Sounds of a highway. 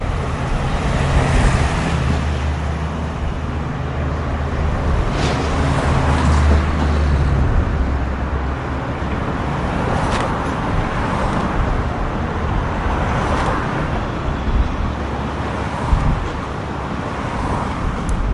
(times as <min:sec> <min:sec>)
0:00.7 0:02.5, 0:04.6 0:08.4, 0:09.0 0:14.8, 0:15.6 0:16.4, 0:17.1 0:18.3